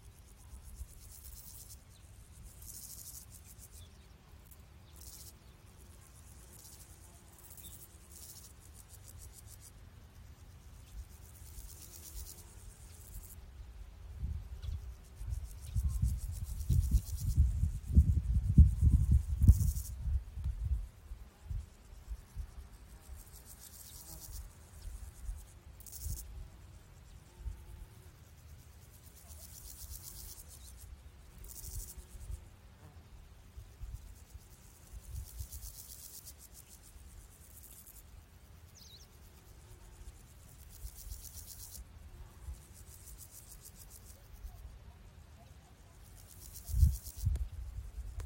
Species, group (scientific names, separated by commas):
Pseudochorthippus parallelus, Orthoptera